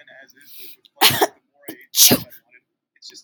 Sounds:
Sneeze